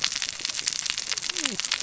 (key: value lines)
label: biophony, cascading saw
recorder: SoundTrap 600 or HydroMoth